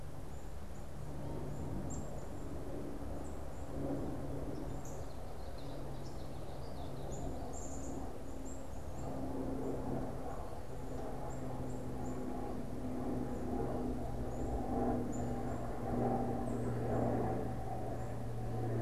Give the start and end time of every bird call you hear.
0.0s-18.8s: Black-capped Chickadee (Poecile atricapillus)
4.7s-5.2s: Northern Cardinal (Cardinalis cardinalis)
4.9s-7.4s: Common Yellowthroat (Geothlypis trichas)

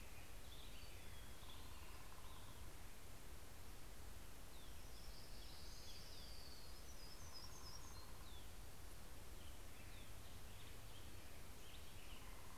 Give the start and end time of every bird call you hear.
0.0s-3.0s: Black-headed Grosbeak (Pheucticus melanocephalus)
4.6s-7.0s: Orange-crowned Warbler (Leiothlypis celata)
4.7s-12.6s: Black-headed Grosbeak (Pheucticus melanocephalus)
6.7s-8.8s: Hermit Warbler (Setophaga occidentalis)

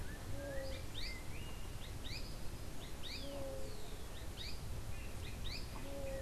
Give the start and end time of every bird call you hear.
0.0s-1.5s: Yellow-backed Oriole (Icterus chrysater)
0.0s-6.2s: Azara's Spinetail (Synallaxis azarae)
0.0s-6.2s: unidentified bird

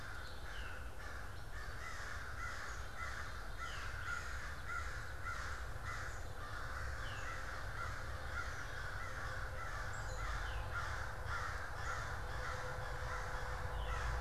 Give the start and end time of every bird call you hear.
0.0s-14.2s: American Crow (Corvus brachyrhynchos)
0.0s-14.2s: Black-capped Chickadee (Poecile atricapillus)
0.0s-14.2s: Veery (Catharus fuscescens)
9.6s-14.2s: Gray Catbird (Dumetella carolinensis)

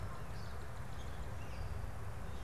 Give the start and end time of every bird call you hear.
0.2s-0.7s: Pine Siskin (Spinus pinus)

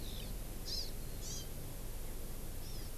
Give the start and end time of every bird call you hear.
0.1s-0.3s: Hawaii Amakihi (Chlorodrepanis virens)
0.6s-0.9s: Hawaii Amakihi (Chlorodrepanis virens)
1.2s-1.5s: Hawaii Amakihi (Chlorodrepanis virens)
2.6s-2.9s: Hawaii Amakihi (Chlorodrepanis virens)

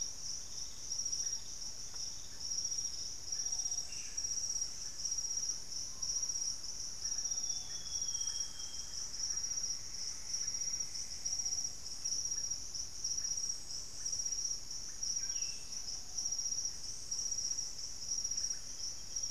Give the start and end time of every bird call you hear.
0.0s-19.3s: Russet-backed Oropendola (Psarocolius angustifrons)
3.6s-4.4s: unidentified bird
5.0s-11.1s: Thrush-like Wren (Campylorhynchus turdinus)
5.7s-6.5s: Screaming Piha (Lipaugus vociferans)
6.5s-9.4s: Amazonian Grosbeak (Cyanoloxia rothschildii)
8.9s-11.8s: Plumbeous Antbird (Myrmelastes hyperythrus)
14.8s-15.8s: unidentified bird
18.7s-19.3s: unidentified bird

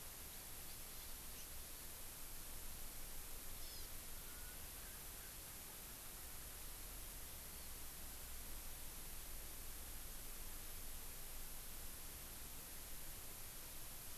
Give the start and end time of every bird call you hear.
3.6s-6.6s: Hawaii Amakihi (Chlorodrepanis virens)

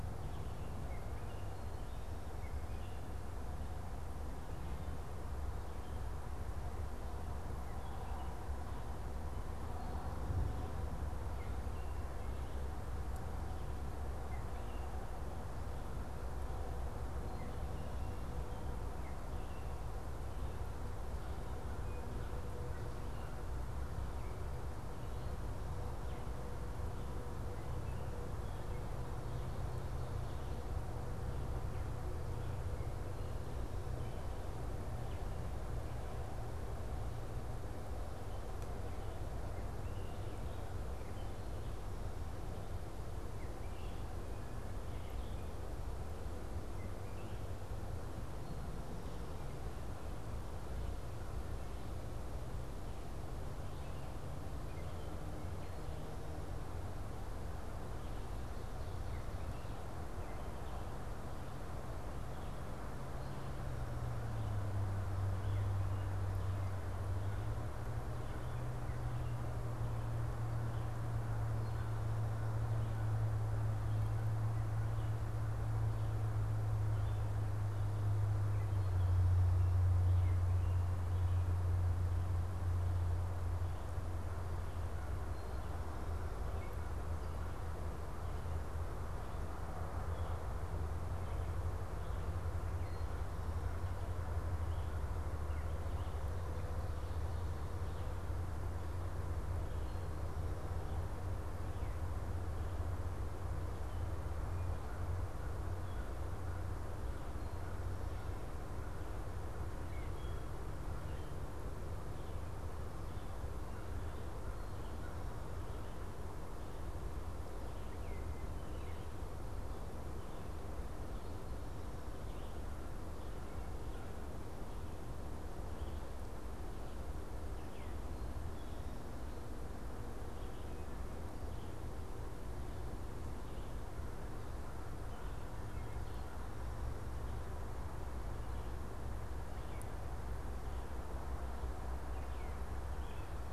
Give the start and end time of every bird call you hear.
0.0s-41.9s: Gray Catbird (Dumetella carolinensis)
21.0s-23.7s: American Crow (Corvus brachyrhynchos)
43.1s-101.0s: unidentified bird
101.3s-143.5s: unidentified bird
104.7s-109.1s: American Crow (Corvus brachyrhynchos)

